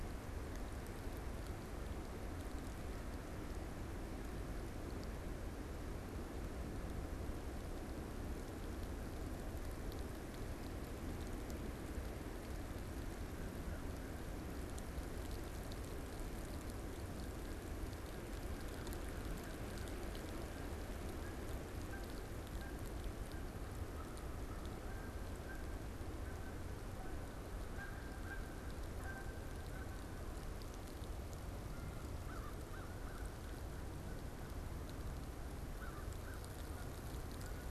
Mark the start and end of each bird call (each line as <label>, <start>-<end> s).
Canada Goose (Branta canadensis), 20.4-37.7 s
American Crow (Corvus brachyrhynchos), 32.1-33.3 s
American Crow (Corvus brachyrhynchos), 35.7-37.0 s